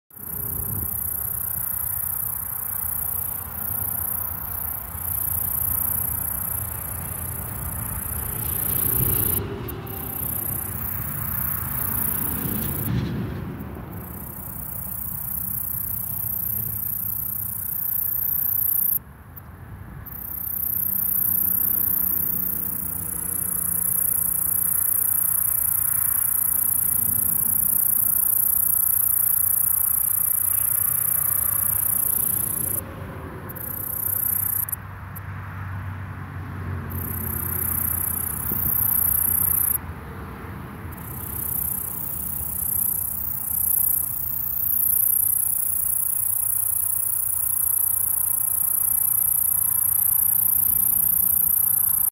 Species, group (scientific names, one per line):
Orchelimum gladiator
Orthoptera